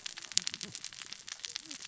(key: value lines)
label: biophony, cascading saw
recorder: SoundTrap 600 or HydroMoth